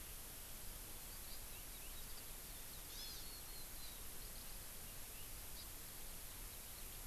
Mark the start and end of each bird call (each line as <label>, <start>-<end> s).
Warbling White-eye (Zosterops japonicus), 2.0-2.2 s
Hawaii Amakihi (Chlorodrepanis virens), 2.9-3.2 s
Warbling White-eye (Zosterops japonicus), 3.3-4.0 s
Hawaii Amakihi (Chlorodrepanis virens), 5.5-5.7 s